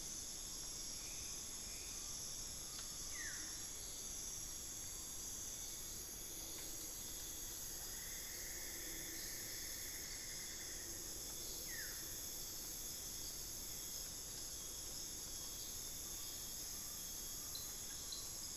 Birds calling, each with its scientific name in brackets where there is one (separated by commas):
Collared Forest-Falcon (Micrastur semitorquatus), Black-faced Antthrush (Formicarius analis), Buff-throated Woodcreeper (Xiphorhynchus guttatus), Cinnamon-throated Woodcreeper (Dendrexetastes rufigula)